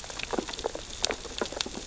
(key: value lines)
label: biophony, sea urchins (Echinidae)
recorder: SoundTrap 600 or HydroMoth